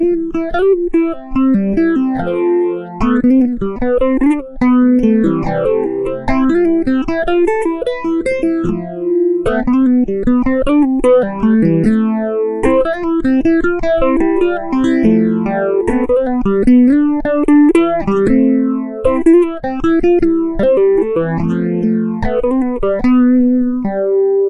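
0.3s An electric guitar plays a melody with a wah effect, starting with a quick solo and transitioning into a steady 4/4 fingerpicking rhythm, creating an expressive and rhythmic funky groove. 24.5s

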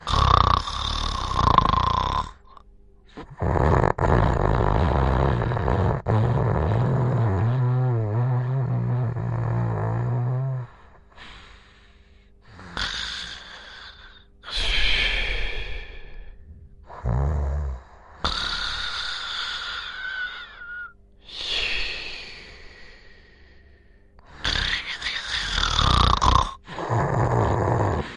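0.0s Snoring of a sleeping person. 28.2s

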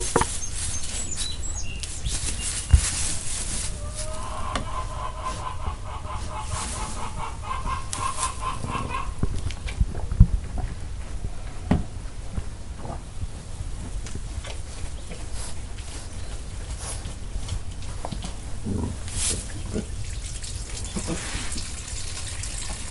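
0.0s Grass rustles quietly as birds sing in the background. 4.0s
4.0s A rooster cackles loudly, increasing in volume, with rustling sounds in the background. 9.1s
9.2s Very quiet sounds of drinking and sniffing. 18.7s
18.8s A short, quiet rustle. 19.8s
19.8s Sounds of water pouring outdoors. 22.9s

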